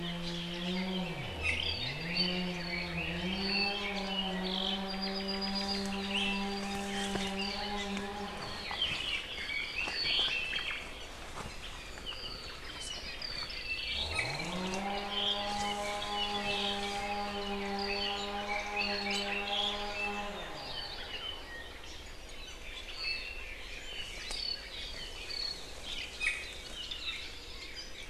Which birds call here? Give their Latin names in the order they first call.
Drepanis coccinea, Himatione sanguinea, Myadestes obscurus, Leiothrix lutea